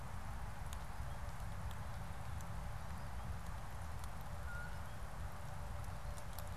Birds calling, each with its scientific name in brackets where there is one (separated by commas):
Blue Jay (Cyanocitta cristata)